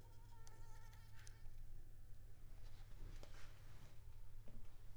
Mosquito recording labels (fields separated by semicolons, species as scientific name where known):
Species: Culex pipiens complex; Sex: female; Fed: unfed; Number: one; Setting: cup